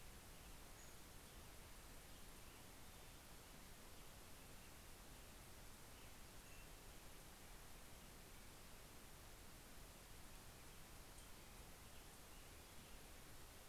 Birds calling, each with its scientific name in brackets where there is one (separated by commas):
Pacific-slope Flycatcher (Empidonax difficilis)